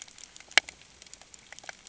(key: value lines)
label: ambient
recorder: HydroMoth